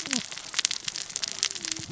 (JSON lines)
{"label": "biophony, cascading saw", "recorder": "SoundTrap 600 or HydroMoth"}